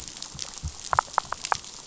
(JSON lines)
{"label": "biophony", "recorder": "SoundTrap 500"}